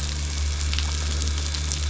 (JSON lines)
{"label": "anthrophony, boat engine", "recorder": "SoundTrap 500"}